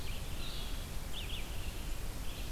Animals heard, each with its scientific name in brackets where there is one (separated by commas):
Red-eyed Vireo (Vireo olivaceus)